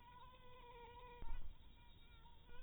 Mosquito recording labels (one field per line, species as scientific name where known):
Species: mosquito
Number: one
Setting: cup